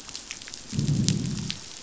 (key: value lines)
label: biophony, growl
recorder: SoundTrap 500